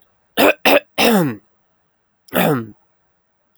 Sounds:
Throat clearing